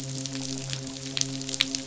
{"label": "biophony, midshipman", "recorder": "SoundTrap 500"}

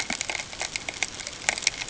{"label": "ambient", "recorder": "HydroMoth"}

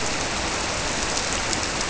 {"label": "biophony", "recorder": "SoundTrap 300"}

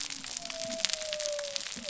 {"label": "biophony", "recorder": "SoundTrap 300"}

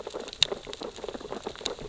{"label": "biophony, sea urchins (Echinidae)", "recorder": "SoundTrap 600 or HydroMoth"}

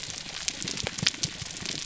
{"label": "biophony", "recorder": "SoundTrap 300"}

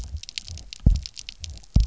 {"label": "biophony, double pulse", "recorder": "SoundTrap 300"}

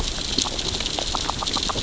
{"label": "biophony, grazing", "recorder": "SoundTrap 600 or HydroMoth"}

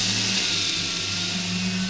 {"label": "anthrophony, boat engine", "recorder": "SoundTrap 500"}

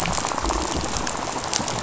{"label": "biophony, rattle", "recorder": "SoundTrap 500"}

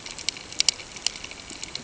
{"label": "ambient", "recorder": "HydroMoth"}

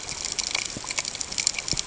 {"label": "ambient", "recorder": "HydroMoth"}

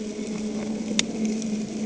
{"label": "anthrophony, boat engine", "recorder": "HydroMoth"}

